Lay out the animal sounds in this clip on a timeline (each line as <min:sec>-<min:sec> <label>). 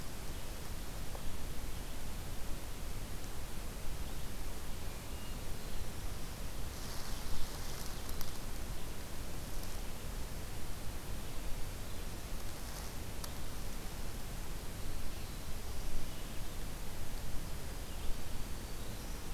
0:06.3-0:08.3 Ovenbird (Seiurus aurocapilla)
0:18.0-0:19.3 Black-throated Green Warbler (Setophaga virens)